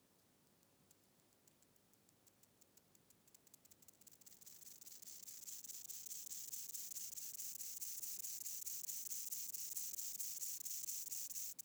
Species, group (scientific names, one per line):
Leptophyes punctatissima
Orthoptera